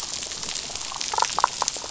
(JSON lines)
{"label": "biophony, damselfish", "recorder": "SoundTrap 500"}